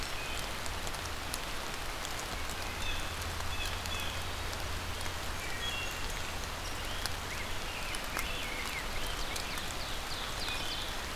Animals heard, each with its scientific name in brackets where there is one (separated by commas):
Ovenbird (Seiurus aurocapilla), Black-and-white Warbler (Mniotilta varia), Blue Jay (Cyanocitta cristata), Wood Thrush (Hylocichla mustelina), Rose-breasted Grosbeak (Pheucticus ludovicianus)